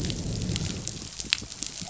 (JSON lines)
{"label": "biophony, growl", "recorder": "SoundTrap 500"}